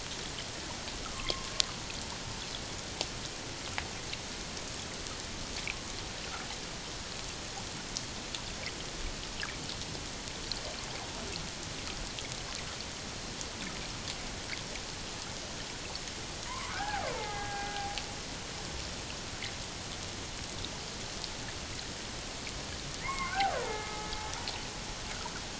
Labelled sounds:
1.0	1.5	killer whale, Bigg's (transient), 1.0 to 1.4 kHz
16.5	17.9	killer whale, Bigg's (transient), 0.78 to 2.4 kHz
23.0	24.1	killer whale, Bigg's (transient), 0.81 to 2.4 kHz

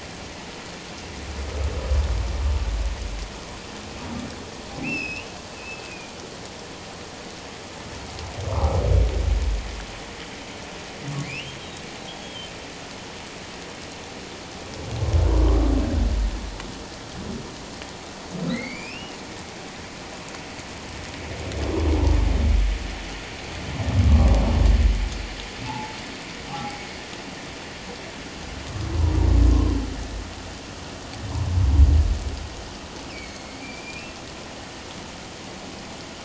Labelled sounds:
4.8	5.3	humpback whale, 2.3 to 5.4 kHz
5.8	6.1	humpback whale, 2.3 to 2.6 kHz
8.5	8.8	humpback whale, 1.1 to 1.3 kHz
11.2	11.6	humpback whale, 2.0 to 3.2 kHz
12.1	12.5	humpback whale, 3.0 to 3.4 kHz
18.5	19.2	humpback whale, 1.8 to 4.8 kHz
25.7	26.8	humpback whale, 0.78 to 1.0 kHz
33.1	34.2	humpback whale, 2.1 to 4.7 kHz

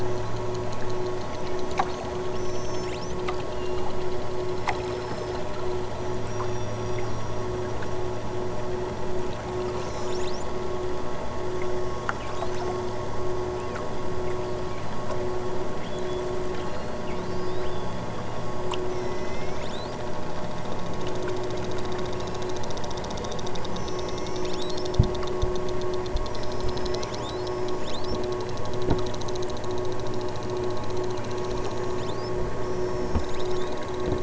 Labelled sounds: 1.1	4.1	killer whale, southern Alaska resident, 1.5 to 8.0 kHz
4.3	5.6	killer whale, southern Alaska resident, 2.0 to 5.8 kHz
6.2	7.3	killer whale, southern Alaska resident, 2.2 to 6.3 kHz
9.6	10.5	killer whale, southern Alaska resident, 2.2 to 8.0 kHz
11.5	12.6	killer whale, southern Alaska resident, 3.8 to 8.0 kHz
15.8	18.2	killer whale, southern Alaska resident, 2.3 to 8.0 kHz
18.8	20.1	killer whale, southern Alaska resident, 1.6 to 8.0 kHz
22.1	22.9	killer whale, southern Alaska resident, 2.4 to 7.0 kHz
23.7	24.9	killer whale, southern Alaska resident, 1.6 to 8.0 kHz
26.4	28.3	killer whale, southern Alaska resident, 1.7 to 8.0 kHz
29.8	30.6	killer whale, southern Alaska resident, 4.8 to 8.0 kHz
31.2	33.8	killer whale, southern Alaska resident, 1.9 to 8.0 kHz

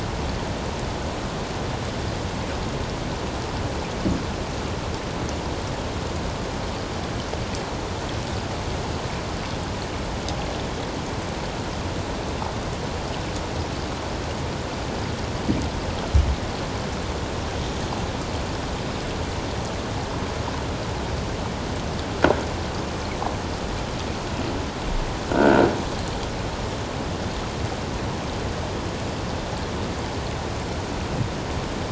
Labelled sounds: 25.3	25.7	croaking sound likely from a nearby submerged object, 1.3 to 1.7 kHz

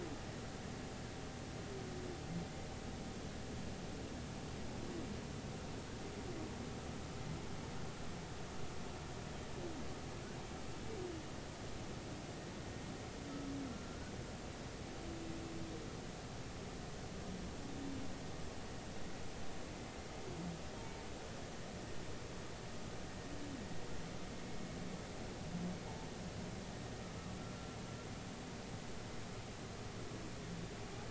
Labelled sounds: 19.7	20.0	humpback whale, 2.0 to 2.1 kHz
24.3	24.6	humpback whale, 2.1 to 2.2 kHz

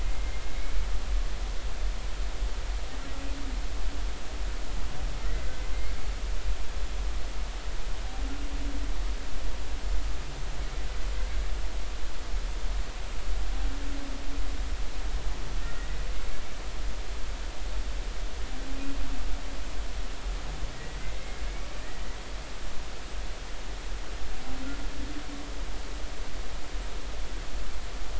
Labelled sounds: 0.0	0.4	humpback whale, 1.9 to 2.2 kHz
5.2	5.5	humpback whale, 1.8 to 2.1 kHz
15.6	16.0	humpback whale, 1.8 to 2.0 kHz
20.7	21.0	humpback whale, 1.9 to 2.0 kHz

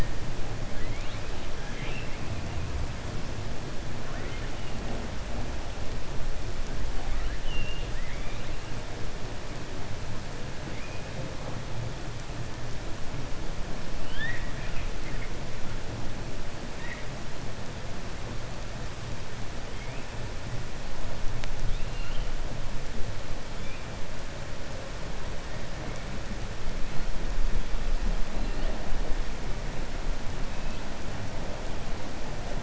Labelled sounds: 1.6	2.2	killer whale, 0.87 to 3.7 kHz
4.0	4.4	killer whale, 0.65 to 3.1 kHz
7.0	8.4	killer whale, 0.79 to 3.7 kHz
13.9	14.9	killer whale, 1.4 to 3.9 kHz
21.6	22.3	killer whale, 2.6 to 4.3 kHz

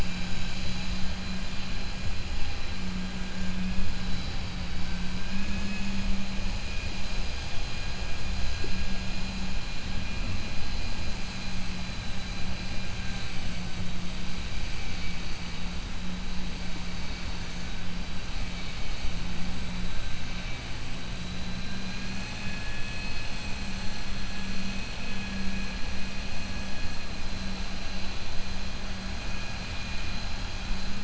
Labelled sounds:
5.2	6.0	vessel noise, 1.6 to 3.4 kHz

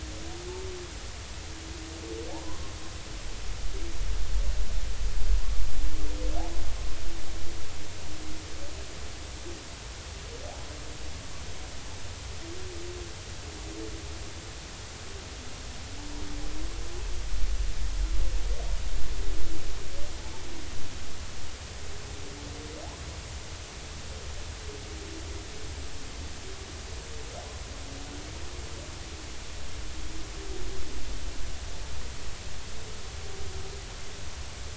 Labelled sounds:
2.3	2.7	humpback whale, 0.80 to 1.1 kHz

